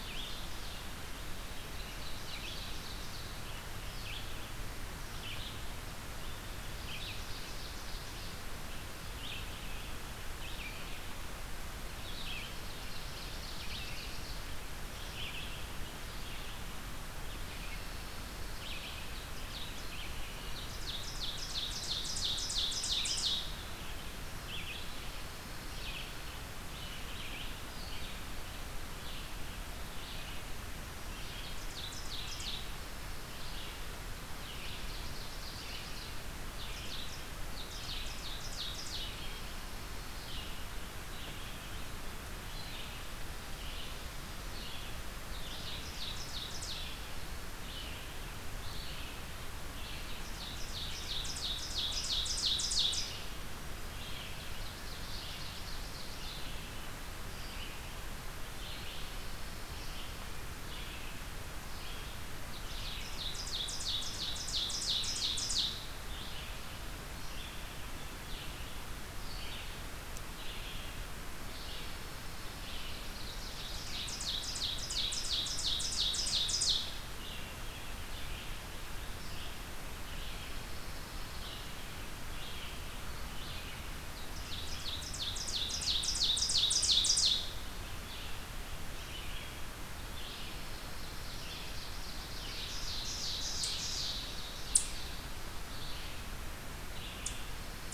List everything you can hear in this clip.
Red-eyed Vireo, Ovenbird, Pine Warbler, Eastern Chipmunk